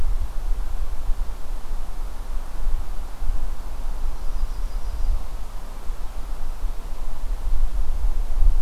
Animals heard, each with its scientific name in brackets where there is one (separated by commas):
Yellow-rumped Warbler (Setophaga coronata)